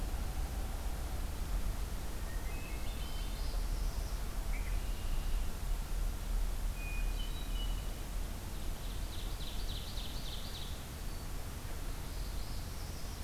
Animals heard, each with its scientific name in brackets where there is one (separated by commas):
Red-winged Blackbird (Agelaius phoeniceus), Northern Parula (Setophaga americana), Ovenbird (Seiurus aurocapilla), Hermit Thrush (Catharus guttatus)